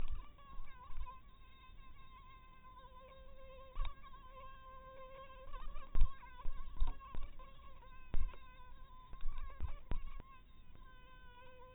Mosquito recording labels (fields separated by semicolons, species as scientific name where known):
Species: mosquito; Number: one; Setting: cup